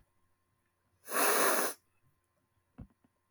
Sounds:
Sniff